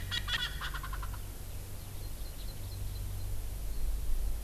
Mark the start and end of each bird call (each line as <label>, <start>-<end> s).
Erckel's Francolin (Pternistis erckelii), 0.1-1.2 s
Hawaii Amakihi (Chlorodrepanis virens), 1.8-3.3 s